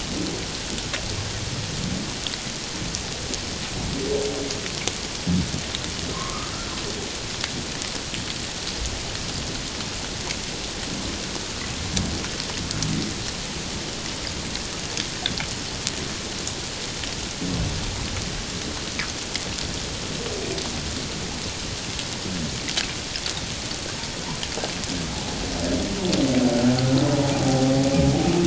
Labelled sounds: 6.1	6.5	humpback whale, 0.97 to 1.3 kHz
27.4	27.7	humpback whale, 0.78 to 0.81 kHz

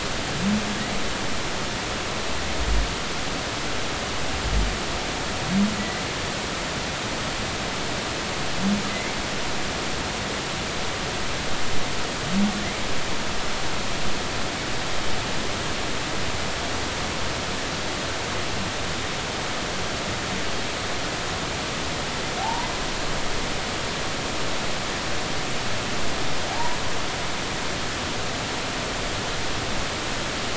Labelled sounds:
8.9	9.1	humpback whale, 2.0 to 2.3 kHz
22.4	22.7	humpback whale, 0.80 to 1.1 kHz
26.5	26.8	humpback whale, 0.80 to 1.0 kHz

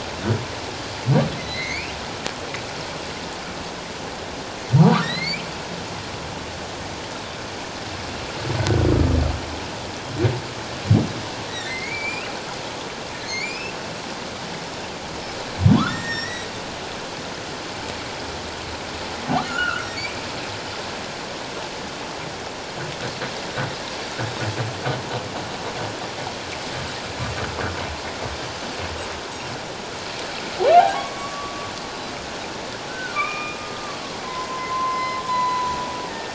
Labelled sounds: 1.4	1.9	humpback whale, 1.8 to 4.8 kHz
4.8	5.5	humpback whale, 0.88 to 4.7 kHz
11.5	12.3	humpback whale, 1.7 to 4.0 kHz
13.2	13.7	humpback whale, 2.0 to 7.4 kHz
15.8	16.5	humpback whale, 0.94 to 7.5 kHz
19.4	19.9	humpback whale, 1.2 to 3.0 kHz
30.7	31.7	humpback whale, 0.78 to 1.7 kHz
31.9	32.1	Pacific white-sided dolphin, 3.9 to 4.1 kHz
32.9	33.6	humpback whale, 1.1 to 2.5 kHz
34.2	36.3	humpback whale, 0.94 to 5.2 kHz

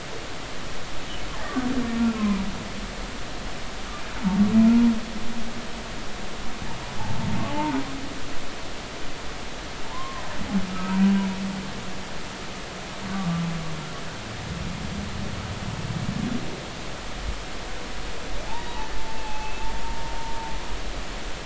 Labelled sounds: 2.0	2.4	humpback whale, 0.93 to 1.4 kHz
7.5	7.8	humpback whale, 0.83 to 1.1 kHz
9.8	11.0	humpback whale, 0.86 to 1.4 kHz
13.1	13.4	humpback whale, 1.1 to 1.2 kHz
19.2	19.7	humpback whale, 0.80 to 2.7 kHz

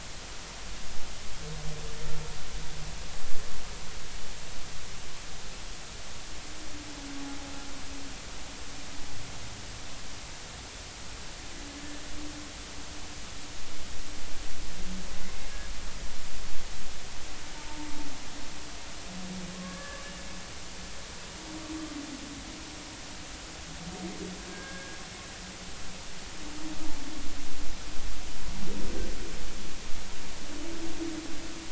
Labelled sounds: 17.5	17.9	humpback whale, 0.83 to 1.0 kHz
19.6	20.1	humpback whale, 1.0 to 1.8 kHz
24.5	25.0	humpback whale, 1.5 to 1.7 kHz

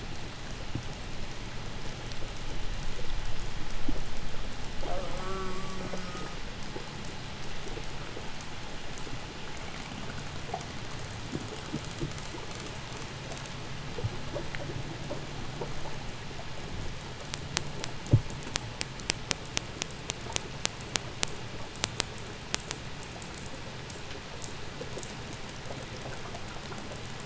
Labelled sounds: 4.6	6.6	killer whale, 0.07 to 3.6 kHz

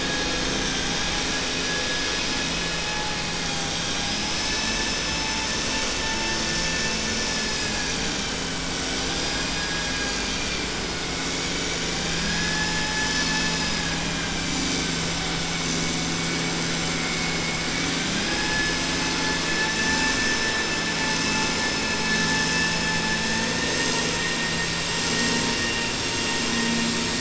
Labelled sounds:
9.4	10.6	vessel noise, 0.81 to 3.2 kHz
18.0	18.7	vessel noise, 0.81 to 2.6 kHz

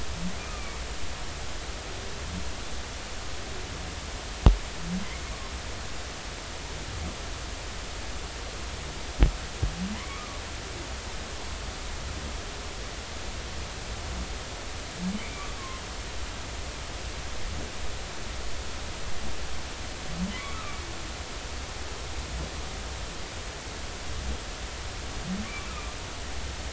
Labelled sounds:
0.4	0.8	humpback whale, 1.1 to 1.3 kHz
9.9	10.4	humpback whale, 0.93 to 2.4 kHz
15.1	15.5	humpback whale, 2.0 to 2.4 kHz
20.3	20.8	humpback whale, 0.99 to 2.4 kHz

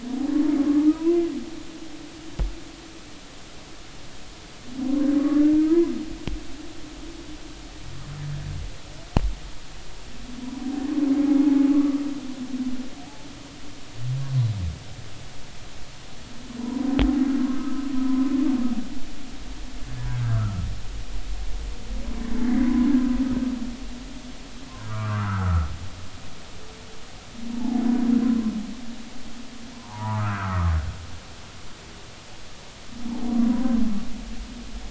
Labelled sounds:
0.9	1.2	humpback whale, 0.93 to 2.8 kHz
11.7	12.0	humpback whale, 1.1 to 1.2 kHz
16.6	17.8	humpback whale, 0.90 to 1.3 kHz
20.1	20.7	humpback whale, 1.1 to 1.7 kHz
22.6	22.9	humpback whale, 0.96 to 1.1 kHz
24.8	25.7	humpback whale, 1.0 to 1.6 kHz
29.7	30.7	humpback whale, 0.80 to 1.7 kHz
33.5	33.8	humpback whale, 0.93 to 1.1 kHz

